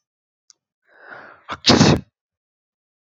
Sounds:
Sneeze